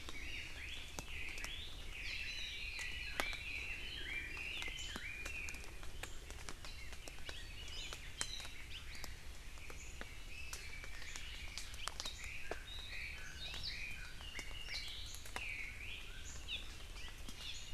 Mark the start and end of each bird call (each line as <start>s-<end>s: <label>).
0.0s-0.5s: Hawaii Amakihi (Chlorodrepanis virens)
0.1s-5.9s: Chinese Hwamei (Garrulax canorus)
2.2s-2.6s: Hawaii Amakihi (Chlorodrepanis virens)
7.7s-8.6s: Hawaii Amakihi (Chlorodrepanis virens)
9.5s-11.7s: Chinese Hwamei (Garrulax canorus)
12.2s-16.1s: Chinese Hwamei (Garrulax canorus)
16.5s-16.6s: Hawaii Amakihi (Chlorodrepanis virens)
17.4s-17.5s: Hawaii Amakihi (Chlorodrepanis virens)